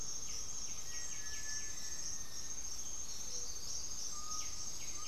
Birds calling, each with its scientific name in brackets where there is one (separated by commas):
White-winged Becard (Pachyramphus polychopterus), Chestnut-winged Foliage-gleaner (Dendroma erythroptera), Undulated Tinamou (Crypturellus undulatus), unidentified bird, Gray-fronted Dove (Leptotila rufaxilla), Black-faced Antthrush (Formicarius analis), Cinereous Tinamou (Crypturellus cinereus)